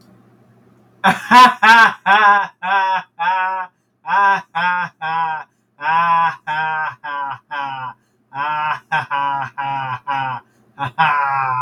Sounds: Laughter